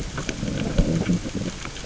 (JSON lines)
{"label": "biophony, growl", "recorder": "SoundTrap 600 or HydroMoth"}